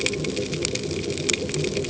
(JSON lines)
{"label": "ambient", "recorder": "HydroMoth"}